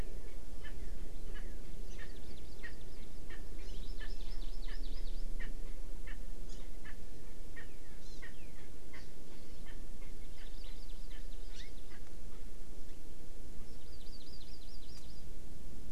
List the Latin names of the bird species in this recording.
Pternistis erckelii, Chlorodrepanis virens